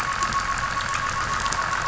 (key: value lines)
label: anthrophony, boat engine
recorder: SoundTrap 500